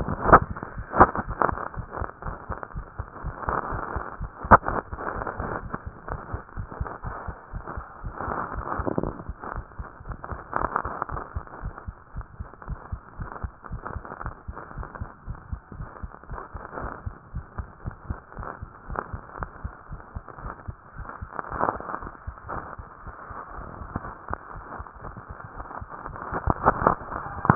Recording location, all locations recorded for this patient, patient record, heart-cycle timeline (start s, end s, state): tricuspid valve (TV)
aortic valve (AV)+pulmonary valve (PV)+tricuspid valve (TV)+mitral valve (MV)
#Age: Child
#Sex: Female
#Height: 137.0 cm
#Weight: 31.4 kg
#Pregnancy status: False
#Murmur: Absent
#Murmur locations: nan
#Most audible location: nan
#Systolic murmur timing: nan
#Systolic murmur shape: nan
#Systolic murmur grading: nan
#Systolic murmur pitch: nan
#Systolic murmur quality: nan
#Diastolic murmur timing: nan
#Diastolic murmur shape: nan
#Diastolic murmur grading: nan
#Diastolic murmur pitch: nan
#Diastolic murmur quality: nan
#Outcome: Abnormal
#Campaign: 2015 screening campaign
0.00	11.62	unannotated
11.62	11.74	S1
11.74	11.86	systole
11.86	11.98	S2
11.98	12.14	diastole
12.14	12.26	S1
12.26	12.38	systole
12.38	12.50	S2
12.50	12.68	diastole
12.68	12.80	S1
12.80	12.90	systole
12.90	13.02	S2
13.02	13.18	diastole
13.18	13.30	S1
13.30	13.40	systole
13.40	13.54	S2
13.54	13.70	diastole
13.70	13.82	S1
13.82	13.94	systole
13.94	14.04	S2
14.04	14.24	diastole
14.24	14.34	S1
14.34	14.44	systole
14.44	14.56	S2
14.56	14.76	diastole
14.76	14.88	S1
14.88	15.00	systole
15.00	15.10	S2
15.10	15.28	diastole
15.28	15.38	S1
15.38	15.50	systole
15.50	15.62	S2
15.62	15.78	diastole
15.78	15.90	S1
15.90	16.02	systole
16.02	16.12	S2
16.12	16.30	diastole
16.30	16.40	S1
16.40	16.54	systole
16.54	16.62	S2
16.62	16.78	diastole
16.78	16.92	S1
16.92	17.02	systole
17.02	17.16	S2
17.16	17.34	diastole
17.34	17.46	S1
17.46	17.56	systole
17.56	17.68	S2
17.68	17.84	diastole
17.84	17.96	S1
17.96	18.06	systole
18.06	18.20	S2
18.20	18.38	diastole
18.38	18.48	S1
18.48	18.60	systole
18.60	18.72	S2
18.72	18.90	diastole
18.90	19.04	S1
19.04	19.12	systole
19.12	19.22	S2
19.22	19.40	diastole
19.40	19.50	S1
19.50	19.62	systole
19.62	19.74	S2
19.74	19.90	diastole
19.90	20.02	S1
20.02	20.14	systole
20.14	20.26	S2
20.26	20.42	diastole
20.42	20.54	S1
20.54	20.64	systole
20.64	20.78	S2
20.78	20.96	diastole
20.96	21.08	S1
21.08	21.20	systole
21.20	21.32	S2
21.32	21.50	diastole
21.50	27.55	unannotated